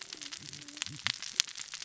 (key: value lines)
label: biophony, cascading saw
recorder: SoundTrap 600 or HydroMoth